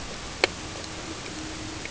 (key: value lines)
label: ambient
recorder: HydroMoth